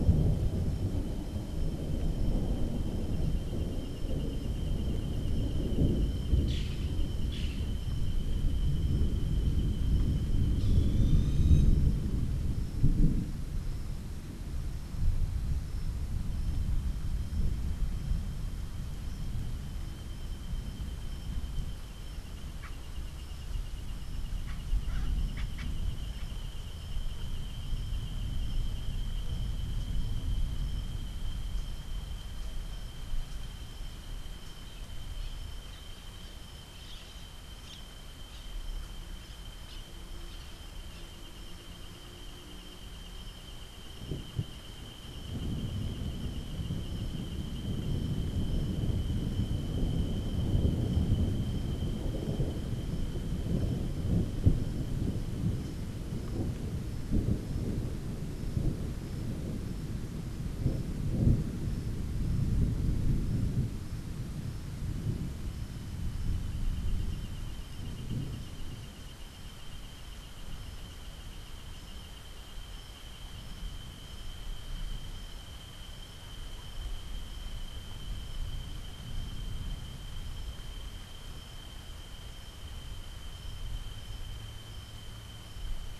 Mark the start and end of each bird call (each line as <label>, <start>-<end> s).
Boat-billed Flycatcher (Megarynchus pitangua), 6.4-11.8 s
Montezuma Oropendola (Psarocolius montezuma), 22.5-25.9 s